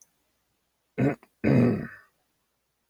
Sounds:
Throat clearing